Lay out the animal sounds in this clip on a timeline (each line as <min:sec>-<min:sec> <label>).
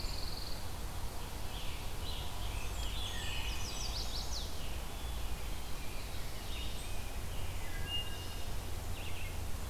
0:00.0-0:00.7 Pine Warbler (Setophaga pinus)
0:01.1-0:03.9 Scarlet Tanager (Piranga olivacea)
0:02.2-0:03.8 Blackburnian Warbler (Setophaga fusca)
0:03.1-0:04.5 Chestnut-sided Warbler (Setophaga pensylvanica)
0:05.6-0:07.7 Rose-breasted Grosbeak (Pheucticus ludovicianus)
0:07.5-0:08.6 Wood Thrush (Hylocichla mustelina)